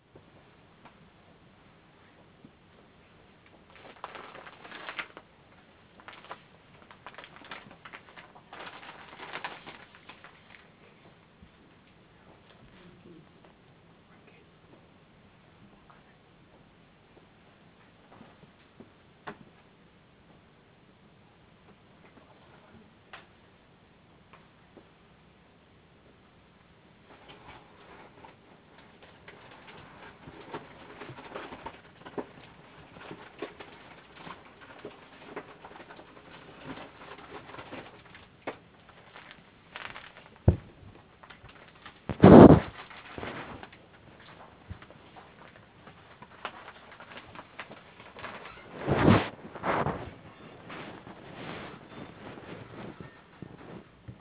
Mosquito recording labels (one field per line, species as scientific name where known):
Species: no mosquito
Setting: insect culture